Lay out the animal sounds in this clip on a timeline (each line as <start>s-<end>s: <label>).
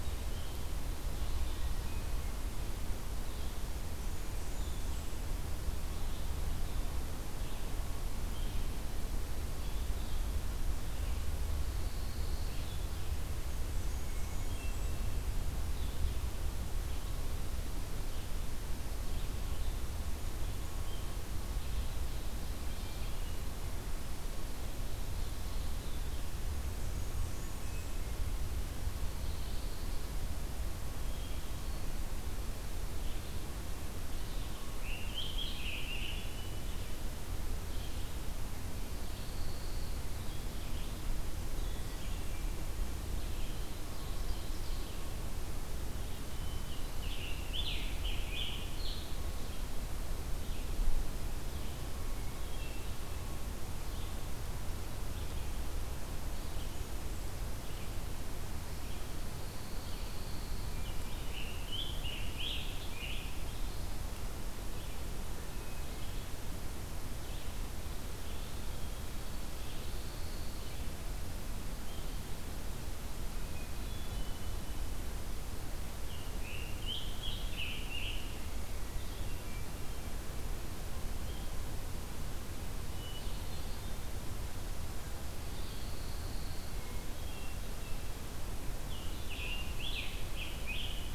0.0s-26.3s: Red-eyed Vireo (Vireo olivaceus)
1.4s-2.4s: Hermit Thrush (Catharus guttatus)
3.9s-5.3s: Blackburnian Warbler (Setophaga fusca)
11.5s-12.8s: Pine Warbler (Setophaga pinus)
13.3s-15.0s: Blackburnian Warbler (Setophaga fusca)
13.9s-15.2s: Hermit Thrush (Catharus guttatus)
22.5s-23.5s: Hermit Thrush (Catharus guttatus)
26.4s-28.1s: Blackburnian Warbler (Setophaga fusca)
27.3s-28.4s: Hermit Thrush (Catharus guttatus)
29.0s-30.1s: Pine Warbler (Setophaga pinus)
30.8s-81.6s: Red-eyed Vireo (Vireo olivaceus)
34.6s-36.4s: Scarlet Tanager (Piranga olivacea)
35.8s-36.7s: Hermit Thrush (Catharus guttatus)
39.0s-40.0s: Pine Warbler (Setophaga pinus)
46.1s-47.4s: Hermit Thrush (Catharus guttatus)
46.5s-49.3s: Scarlet Tanager (Piranga olivacea)
52.0s-53.1s: Hermit Thrush (Catharus guttatus)
59.4s-60.8s: Pine Warbler (Setophaga pinus)
60.6s-61.7s: Hermit Thrush (Catharus guttatus)
60.7s-63.7s: Scarlet Tanager (Piranga olivacea)
65.4s-66.4s: Hermit Thrush (Catharus guttatus)
69.8s-70.7s: Pine Warbler (Setophaga pinus)
73.5s-74.6s: Hermit Thrush (Catharus guttatus)
75.8s-78.5s: Scarlet Tanager (Piranga olivacea)
78.9s-80.1s: Hermit Thrush (Catharus guttatus)
82.9s-84.1s: Hermit Thrush (Catharus guttatus)
85.4s-86.7s: Pine Warbler (Setophaga pinus)
86.7s-88.4s: Hermit Thrush (Catharus guttatus)
88.6s-91.1s: Scarlet Tanager (Piranga olivacea)